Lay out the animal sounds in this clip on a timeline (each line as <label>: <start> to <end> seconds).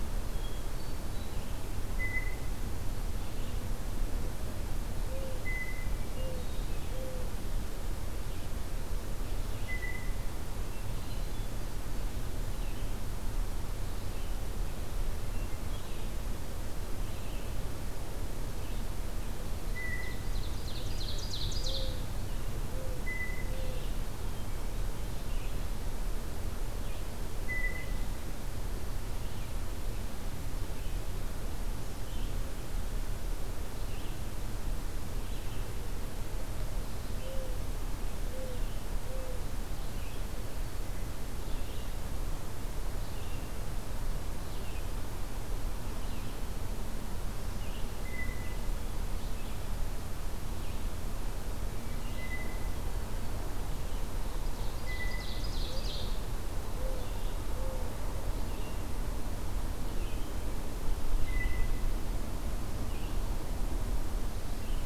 Red-eyed Vireo (Vireo olivaceus): 0.0 to 6.0 seconds
Hermit Thrush (Catharus guttatus): 0.2 to 1.5 seconds
Blue Jay (Cyanocitta cristata): 1.9 to 2.6 seconds
Mourning Dove (Zenaida macroura): 5.0 to 7.3 seconds
Blue Jay (Cyanocitta cristata): 5.4 to 6.1 seconds
Hermit Thrush (Catharus guttatus): 5.8 to 7.2 seconds
Red-eyed Vireo (Vireo olivaceus): 8.0 to 64.9 seconds
Blue Jay (Cyanocitta cristata): 9.5 to 10.5 seconds
Hermit Thrush (Catharus guttatus): 10.6 to 11.6 seconds
Blue Jay (Cyanocitta cristata): 19.7 to 20.4 seconds
Ovenbird (Seiurus aurocapilla): 20.1 to 22.0 seconds
Mourning Dove (Zenaida macroura): 21.5 to 23.9 seconds
Blue Jay (Cyanocitta cristata): 23.0 to 23.6 seconds
Blue Jay (Cyanocitta cristata): 27.4 to 28.2 seconds
Blue Jay (Cyanocitta cristata): 47.9 to 48.7 seconds
Blue Jay (Cyanocitta cristata): 52.1 to 53.1 seconds
Ovenbird (Seiurus aurocapilla): 54.4 to 56.3 seconds
Blue Jay (Cyanocitta cristata): 54.8 to 55.5 seconds
Blue Jay (Cyanocitta cristata): 61.2 to 61.9 seconds